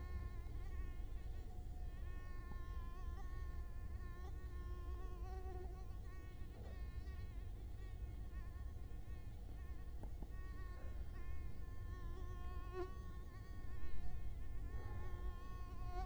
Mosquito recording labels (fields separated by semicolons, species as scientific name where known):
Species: Culex quinquefasciatus; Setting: cup